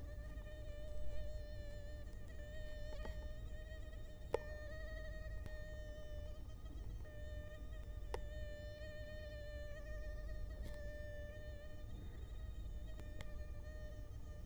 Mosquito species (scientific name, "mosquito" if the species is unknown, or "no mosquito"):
Culex quinquefasciatus